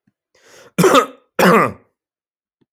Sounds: Cough